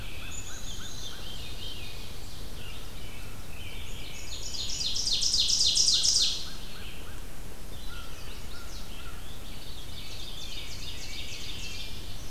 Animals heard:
Red-eyed Vireo (Vireo olivaceus)
American Crow (Corvus brachyrhynchos)
Chestnut-sided Warbler (Setophaga pensylvanica)
American Robin (Turdus migratorius)
Black-capped Chickadee (Poecile atricapillus)
Ovenbird (Seiurus aurocapilla)
Veery (Catharus fuscescens)

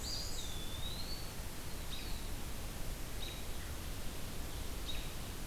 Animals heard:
Eastern Wood-Pewee (Contopus virens)
Black-and-white Warbler (Mniotilta varia)
American Robin (Turdus migratorius)

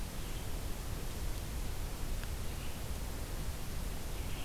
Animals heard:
Red-eyed Vireo (Vireo olivaceus)

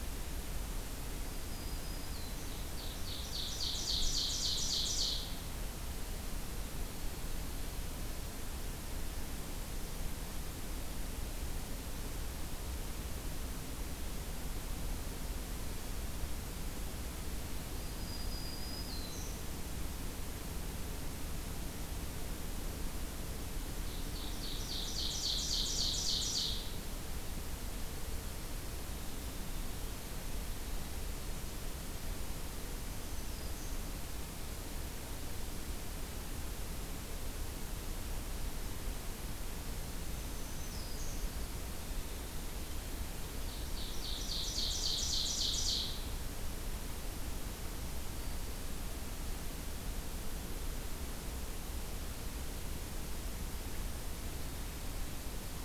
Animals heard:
Black-throated Green Warbler (Setophaga virens)
Winter Wren (Troglodytes hiemalis)
Ovenbird (Seiurus aurocapilla)

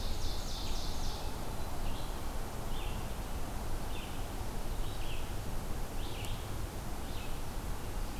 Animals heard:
Red-eyed Vireo (Vireo olivaceus)
Ovenbird (Seiurus aurocapilla)

